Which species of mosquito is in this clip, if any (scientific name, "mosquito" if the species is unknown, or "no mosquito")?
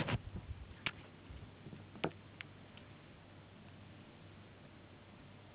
no mosquito